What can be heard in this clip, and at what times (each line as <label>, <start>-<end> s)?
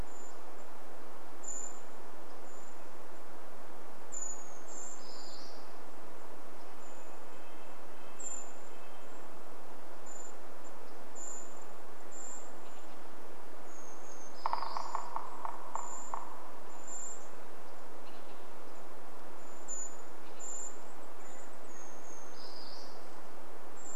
Brown Creeper call, 0-20 s
Brown Creeper song, 4-6 s
Red-breasted Nuthatch song, 6-10 s
Bewick's Wren call, 12-14 s
Brown Creeper song, 14-16 s
woodpecker drumming, 14-18 s
Bewick's Wren call, 18-22 s
Brown Creeper song, 20-24 s